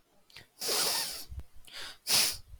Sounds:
Sniff